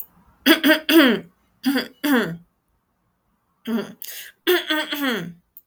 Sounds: Throat clearing